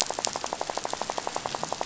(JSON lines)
{"label": "biophony, rattle", "recorder": "SoundTrap 500"}